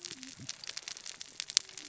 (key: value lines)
label: biophony, cascading saw
recorder: SoundTrap 600 or HydroMoth